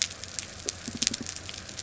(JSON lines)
{"label": "biophony", "recorder": "SoundTrap 300"}